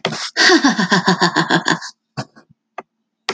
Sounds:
Laughter